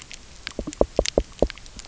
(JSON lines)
{"label": "biophony", "recorder": "SoundTrap 300"}